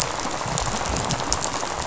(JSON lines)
{"label": "biophony, rattle", "recorder": "SoundTrap 500"}